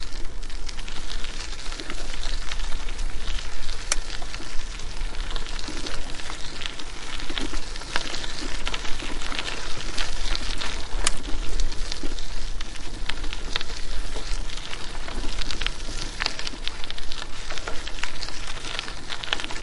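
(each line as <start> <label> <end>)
0.0 A bicycle rides over an uneven sandy path. 19.6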